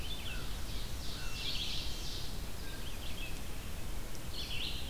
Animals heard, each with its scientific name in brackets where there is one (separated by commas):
Red-eyed Vireo (Vireo olivaceus), Ovenbird (Seiurus aurocapilla), American Crow (Corvus brachyrhynchos)